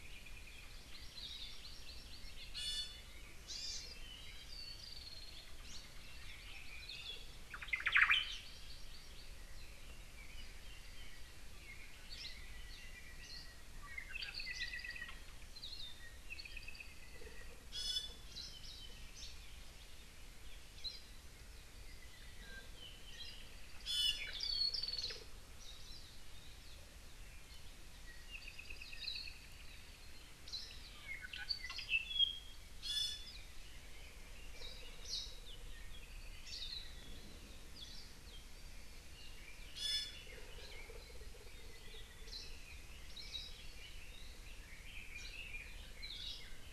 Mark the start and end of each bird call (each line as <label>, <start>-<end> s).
Hawaii Amakihi (Chlorodrepanis virens), 0.9-2.5 s
Iiwi (Drepanis coccinea), 2.5-3.1 s
Hawaii Amakihi (Chlorodrepanis virens), 3.4-3.8 s
Iiwi (Drepanis coccinea), 4.1-4.4 s
Hawaii Creeper (Loxops mana), 4.7-5.9 s
Hawaii Akepa (Loxops coccineus), 6.8-7.2 s
Omao (Myadestes obscurus), 7.5-8.4 s
Hawaii Amakihi (Chlorodrepanis virens), 7.7-9.3 s
Apapane (Himatione sanguinea), 11.5-15.2 s
Hawaii Akepa (Loxops coccineus), 15.5-16.0 s
Apapane (Himatione sanguinea), 16.2-17.6 s
Iiwi (Drepanis coccinea), 17.7-18.3 s
Hawaii Creeper (Loxops mana), 19.1-19.4 s
Iiwi (Drepanis coccinea), 23.8-24.3 s
Hawaii Creeper (Loxops mana), 24.7-25.1 s
Apapane (Himatione sanguinea), 28.3-29.4 s
Hawaii Akepa (Loxops coccineus), 29.0-29.2 s
Apapane (Himatione sanguinea), 31.0-32.6 s
Iiwi (Drepanis coccinea), 32.8-33.3 s
Apapane (Himatione sanguinea), 36.1-37.2 s
Iiwi (Drepanis coccinea), 39.7-40.4 s
Hawaii Akepa (Loxops coccineus), 43.1-43.5 s
Red-billed Leiothrix (Leiothrix lutea), 44.4-46.7 s